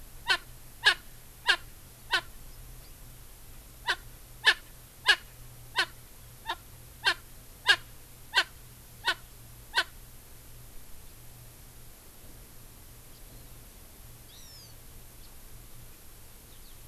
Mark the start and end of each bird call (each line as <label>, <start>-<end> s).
Erckel's Francolin (Pternistis erckelii), 0.2-0.5 s
Erckel's Francolin (Pternistis erckelii), 0.8-1.0 s
Erckel's Francolin (Pternistis erckelii), 1.5-1.6 s
Erckel's Francolin (Pternistis erckelii), 2.1-2.3 s
Erckel's Francolin (Pternistis erckelii), 3.9-4.0 s
Erckel's Francolin (Pternistis erckelii), 4.4-4.6 s
Erckel's Francolin (Pternistis erckelii), 5.0-5.2 s
Erckel's Francolin (Pternistis erckelii), 5.8-5.9 s
Erckel's Francolin (Pternistis erckelii), 6.5-6.6 s
Erckel's Francolin (Pternistis erckelii), 7.1-7.2 s
Erckel's Francolin (Pternistis erckelii), 7.7-7.8 s
Erckel's Francolin (Pternistis erckelii), 8.3-8.5 s
Erckel's Francolin (Pternistis erckelii), 9.0-9.2 s
Erckel's Francolin (Pternistis erckelii), 9.8-9.9 s
House Finch (Haemorhous mexicanus), 13.1-13.2 s
Hawaiian Hawk (Buteo solitarius), 14.3-14.8 s
House Finch (Haemorhous mexicanus), 15.2-15.3 s
Eurasian Skylark (Alauda arvensis), 16.5-16.8 s